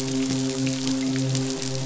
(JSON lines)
{"label": "biophony, midshipman", "recorder": "SoundTrap 500"}